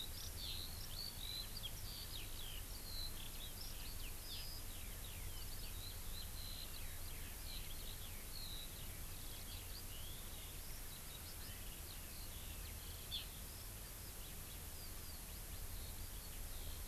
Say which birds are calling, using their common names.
Eurasian Skylark, Hawaii Amakihi